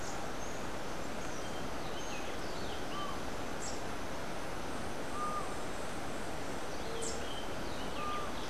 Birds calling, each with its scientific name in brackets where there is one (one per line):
Rufous-breasted Wren (Pheugopedius rutilus)
Rufous-capped Warbler (Basileuterus rufifrons)